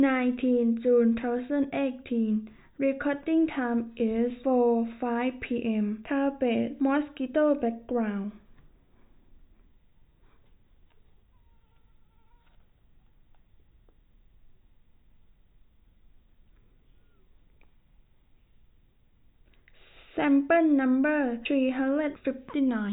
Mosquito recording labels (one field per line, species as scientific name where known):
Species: no mosquito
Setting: cup